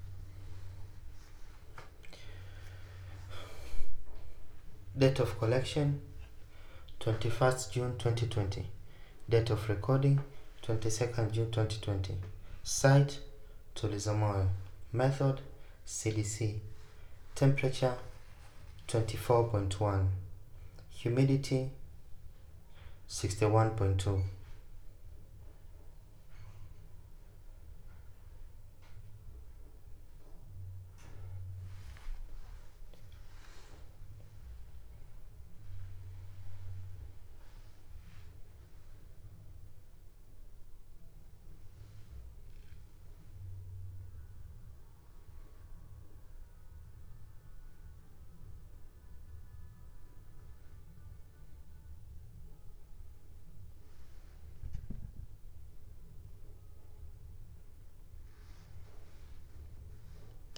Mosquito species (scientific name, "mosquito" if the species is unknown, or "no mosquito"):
no mosquito